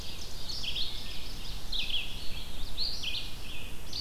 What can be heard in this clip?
Ovenbird, Red-eyed Vireo